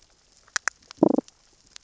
{"label": "biophony, damselfish", "recorder": "SoundTrap 600 or HydroMoth"}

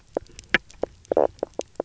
{"label": "biophony, knock croak", "recorder": "SoundTrap 300"}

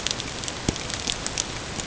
{"label": "ambient", "recorder": "HydroMoth"}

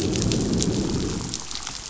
{"label": "biophony, growl", "recorder": "SoundTrap 500"}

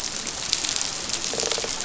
{"label": "biophony", "recorder": "SoundTrap 500"}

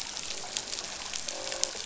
{"label": "biophony, croak", "recorder": "SoundTrap 500"}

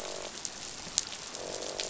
{"label": "biophony, croak", "recorder": "SoundTrap 500"}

